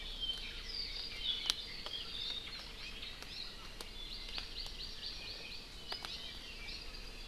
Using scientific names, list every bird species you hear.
Himatione sanguinea, Chlorodrepanis virens